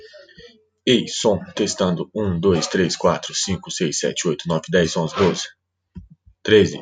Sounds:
Sneeze